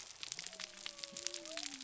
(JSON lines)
{"label": "biophony", "recorder": "SoundTrap 300"}